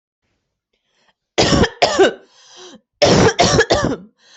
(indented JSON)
{
  "expert_labels": [
    {
      "quality": "good",
      "cough_type": "wet",
      "dyspnea": false,
      "wheezing": false,
      "stridor": false,
      "choking": false,
      "congestion": false,
      "nothing": true,
      "diagnosis": "upper respiratory tract infection",
      "severity": "mild"
    }
  ],
  "age": 31,
  "gender": "female",
  "respiratory_condition": false,
  "fever_muscle_pain": false,
  "status": "healthy"
}